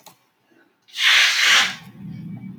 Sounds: Sneeze